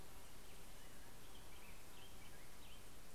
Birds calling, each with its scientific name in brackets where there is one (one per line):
Black-headed Grosbeak (Pheucticus melanocephalus)